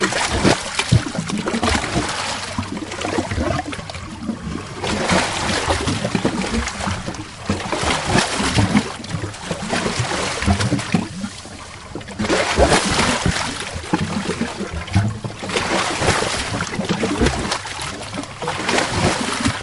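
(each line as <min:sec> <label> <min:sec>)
0:00.0 Rough waves hit a wall loudly and repeatedly. 0:19.6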